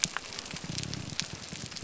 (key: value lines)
label: biophony
recorder: SoundTrap 300